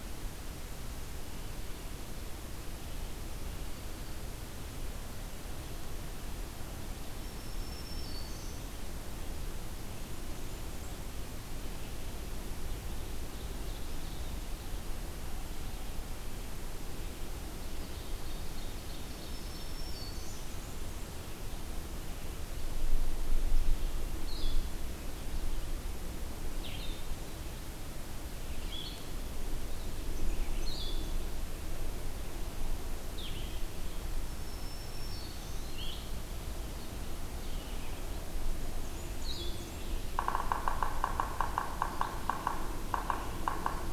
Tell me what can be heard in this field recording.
Black-throated Green Warbler, Ovenbird, Blackburnian Warbler, Blue-headed Vireo, Red-eyed Vireo, Yellow-bellied Sapsucker